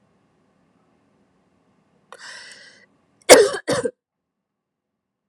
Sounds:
Cough